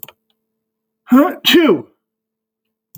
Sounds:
Sneeze